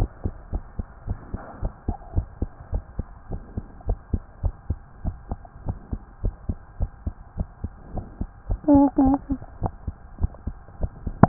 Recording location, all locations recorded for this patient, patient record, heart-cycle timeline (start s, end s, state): tricuspid valve (TV)
aortic valve (AV)+pulmonary valve (PV)+tricuspid valve (TV)+mitral valve (MV)
#Age: Child
#Sex: Female
#Height: 121.0 cm
#Weight: 24.8 kg
#Pregnancy status: False
#Murmur: Absent
#Murmur locations: nan
#Most audible location: nan
#Systolic murmur timing: nan
#Systolic murmur shape: nan
#Systolic murmur grading: nan
#Systolic murmur pitch: nan
#Systolic murmur quality: nan
#Diastolic murmur timing: nan
#Diastolic murmur shape: nan
#Diastolic murmur grading: nan
#Diastolic murmur pitch: nan
#Diastolic murmur quality: nan
#Outcome: Normal
#Campaign: 2015 screening campaign
0.00	0.08	S1
0.08	0.22	systole
0.22	0.32	S2
0.32	0.48	diastole
0.48	0.62	S1
0.62	0.76	systole
0.76	0.86	S2
0.86	1.04	diastole
1.04	1.18	S1
1.18	1.30	systole
1.30	1.42	S2
1.42	1.58	diastole
1.58	1.72	S1
1.72	1.86	systole
1.86	1.98	S2
1.98	2.14	diastole
2.14	2.28	S1
2.28	2.38	systole
2.38	2.50	S2
2.50	2.68	diastole
2.68	2.82	S1
2.82	2.96	systole
2.96	3.10	S2
3.10	3.30	diastole
3.30	3.42	S1
3.42	3.54	systole
3.54	3.64	S2
3.64	3.82	diastole
3.82	3.96	S1
3.96	4.10	systole
4.10	4.24	S2
4.24	4.42	diastole
4.42	4.56	S1
4.56	4.68	systole
4.68	4.82	S2
4.82	5.02	diastole
5.02	5.16	S1
5.16	5.30	systole
5.30	5.42	S2
5.42	5.62	diastole
5.62	5.76	S1
5.76	5.90	systole
5.90	6.00	S2
6.00	6.20	diastole
6.20	6.34	S1
6.34	6.46	systole
6.46	6.56	S2
6.56	6.76	diastole
6.76	6.90	S1
6.90	7.04	systole
7.04	7.14	S2
7.14	7.34	diastole
7.34	7.48	S1
7.48	7.62	systole
7.62	7.72	S2
7.72	7.92	diastole
7.92	8.06	S1
8.06	8.18	systole
8.18	8.28	S2
8.28	8.48	diastole
8.48	8.58	S1